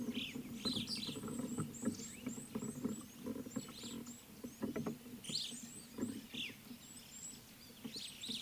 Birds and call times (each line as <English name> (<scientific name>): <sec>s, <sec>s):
Red-cheeked Cordonbleu (Uraeginthus bengalus): 2.4s
Superb Starling (Lamprotornis superbus): 5.4s